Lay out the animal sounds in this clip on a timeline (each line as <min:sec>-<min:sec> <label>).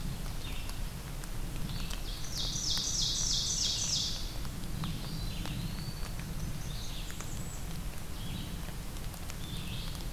0:00.0-0:01.0 Ovenbird (Seiurus aurocapilla)
0:00.0-0:10.1 Red-eyed Vireo (Vireo olivaceus)
0:02.0-0:04.3 Ovenbird (Seiurus aurocapilla)
0:04.9-0:06.3 Eastern Wood-Pewee (Contopus virens)
0:05.9-0:07.7 Blackburnian Warbler (Setophaga fusca)